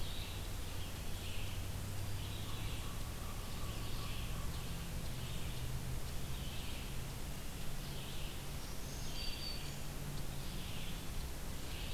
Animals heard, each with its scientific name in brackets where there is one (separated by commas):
Black-throated Green Warbler (Setophaga virens), Red-eyed Vireo (Vireo olivaceus), American Crow (Corvus brachyrhynchos)